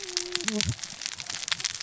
{"label": "biophony, cascading saw", "recorder": "SoundTrap 600 or HydroMoth"}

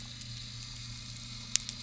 {"label": "anthrophony, boat engine", "recorder": "SoundTrap 300"}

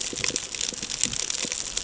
{"label": "ambient", "recorder": "HydroMoth"}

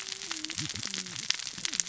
{"label": "biophony, cascading saw", "recorder": "SoundTrap 600 or HydroMoth"}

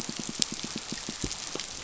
{"label": "biophony, pulse", "recorder": "SoundTrap 500"}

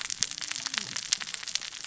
{"label": "biophony, cascading saw", "recorder": "SoundTrap 600 or HydroMoth"}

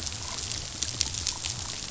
{"label": "biophony", "recorder": "SoundTrap 500"}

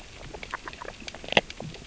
{"label": "biophony, grazing", "recorder": "SoundTrap 600 or HydroMoth"}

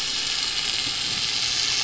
{"label": "anthrophony, boat engine", "recorder": "SoundTrap 500"}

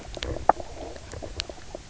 {"label": "biophony, knock croak", "recorder": "SoundTrap 300"}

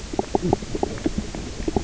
{"label": "biophony, knock croak", "recorder": "SoundTrap 300"}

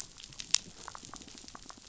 {"label": "biophony", "recorder": "SoundTrap 500"}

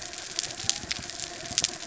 {"label": "anthrophony, mechanical", "recorder": "SoundTrap 300"}
{"label": "biophony", "recorder": "SoundTrap 300"}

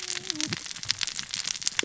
{"label": "biophony, cascading saw", "recorder": "SoundTrap 600 or HydroMoth"}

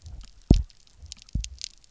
{"label": "biophony, double pulse", "recorder": "SoundTrap 300"}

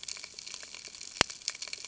{"label": "ambient", "recorder": "HydroMoth"}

